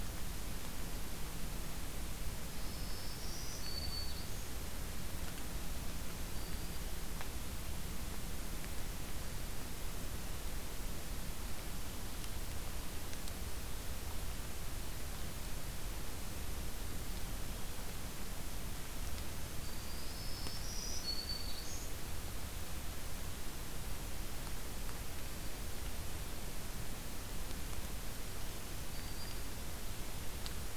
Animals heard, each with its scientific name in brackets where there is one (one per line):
Black-throated Green Warbler (Setophaga virens)